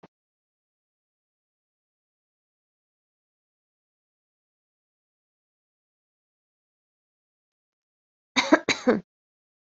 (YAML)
expert_labels:
- quality: good
  cough_type: dry
  dyspnea: false
  wheezing: false
  stridor: false
  choking: false
  congestion: false
  nothing: true
  diagnosis: healthy cough
  severity: pseudocough/healthy cough
age: 29
gender: female
respiratory_condition: false
fever_muscle_pain: false
status: COVID-19